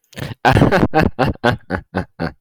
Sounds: Laughter